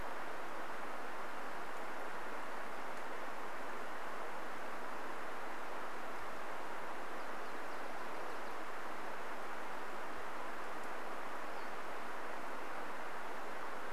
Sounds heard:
Nashville Warbler song, Pacific-slope Flycatcher call

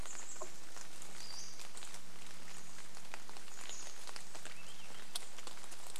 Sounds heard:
rain, Chestnut-backed Chickadee call, Swainson's Thrush song, Pacific-slope Flycatcher call

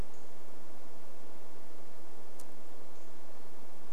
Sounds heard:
unidentified bird chip note

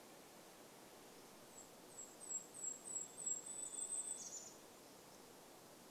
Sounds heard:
Varied Thrush song, Golden-crowned Kinglet song

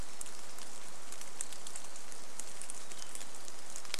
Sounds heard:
Hermit Thrush song, rain

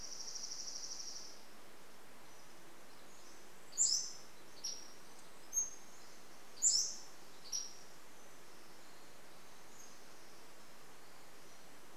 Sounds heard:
Pacific-slope Flycatcher song, Dark-eyed Junco song, Pacific Wren song

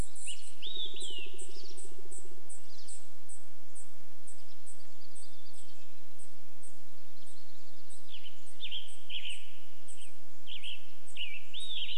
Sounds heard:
Western Tanager song, unidentified bird chip note, woodpecker drumming, Hermit Thrush song, Red-breasted Nuthatch song, warbler song, Olive-sided Flycatcher song, Pine Siskin call

